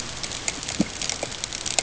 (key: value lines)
label: ambient
recorder: HydroMoth